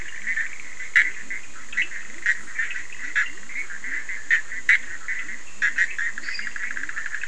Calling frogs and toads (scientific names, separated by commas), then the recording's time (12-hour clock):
Boana bischoffi, Leptodactylus latrans, Sphaenorhynchus surdus, Dendropsophus minutus
12:15am